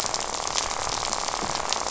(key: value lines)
label: biophony, rattle
recorder: SoundTrap 500